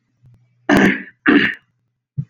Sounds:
Throat clearing